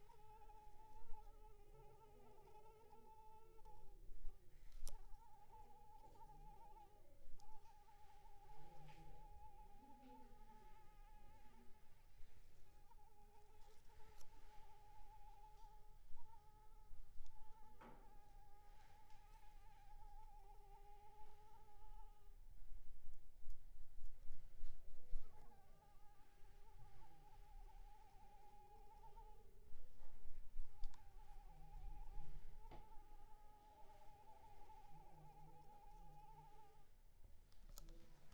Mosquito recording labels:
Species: Anopheles arabiensis; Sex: female; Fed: unfed; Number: one; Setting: cup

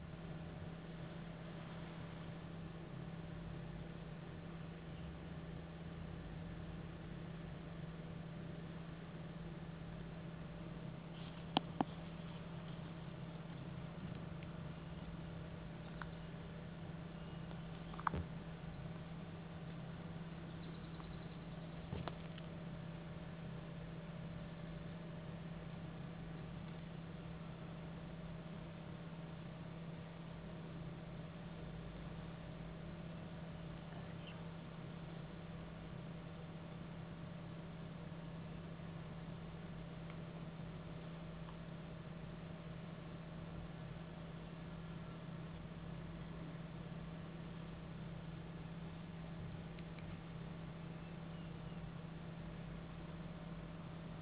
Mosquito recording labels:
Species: no mosquito; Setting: insect culture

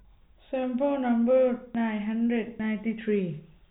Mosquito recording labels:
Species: no mosquito; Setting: cup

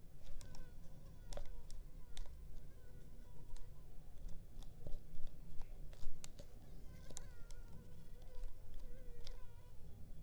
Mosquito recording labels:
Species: Culex pipiens complex; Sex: female; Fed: unfed; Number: one; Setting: cup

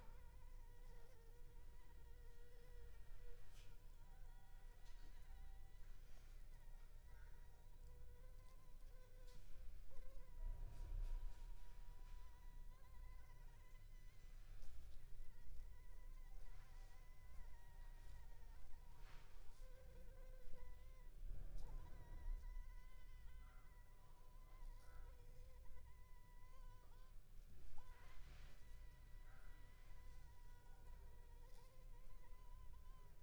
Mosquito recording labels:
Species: Anopheles arabiensis; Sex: female; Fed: unfed; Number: one; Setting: cup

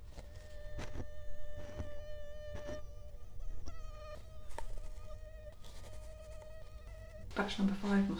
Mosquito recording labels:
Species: Culex quinquefasciatus; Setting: cup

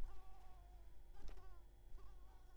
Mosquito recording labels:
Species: Anopheles coustani; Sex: female; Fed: unfed; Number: one; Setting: cup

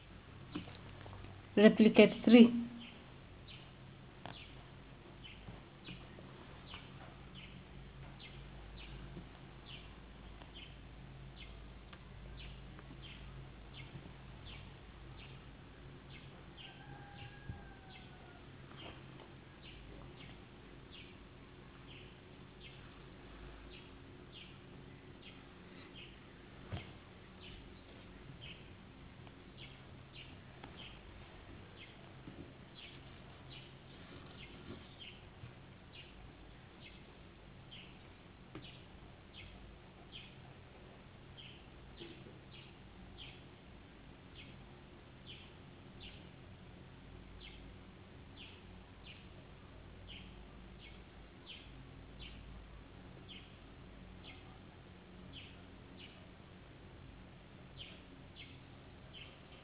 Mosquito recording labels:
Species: no mosquito; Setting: insect culture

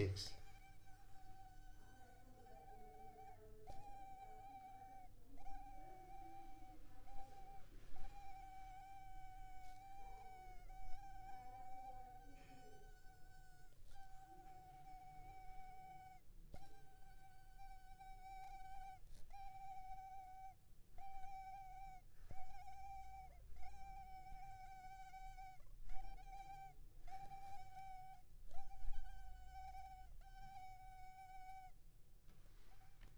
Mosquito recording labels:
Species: Culex pipiens complex; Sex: male; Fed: unfed; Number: one; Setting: cup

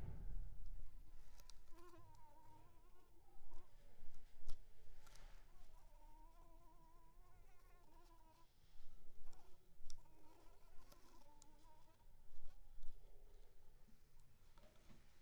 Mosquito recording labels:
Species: Anopheles arabiensis; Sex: female; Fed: unfed; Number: one; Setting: cup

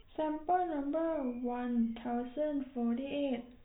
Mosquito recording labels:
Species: no mosquito; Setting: cup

